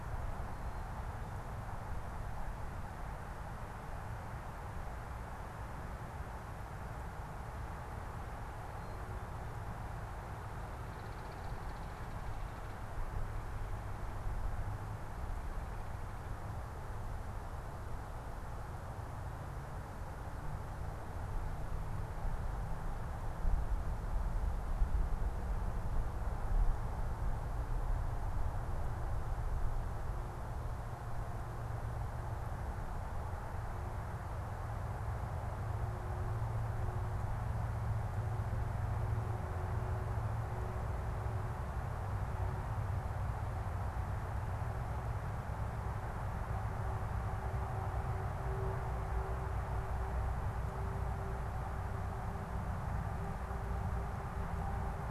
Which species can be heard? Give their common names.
Black-capped Chickadee